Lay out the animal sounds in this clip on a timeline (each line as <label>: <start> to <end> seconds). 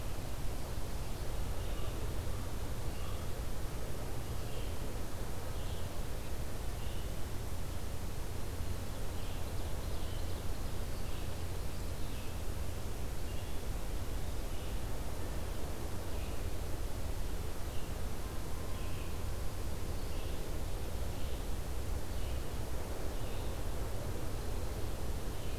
Red-eyed Vireo (Vireo olivaceus): 0.0 to 6.0 seconds
Red-eyed Vireo (Vireo olivaceus): 6.6 to 25.6 seconds
Ovenbird (Seiurus aurocapilla): 8.9 to 10.8 seconds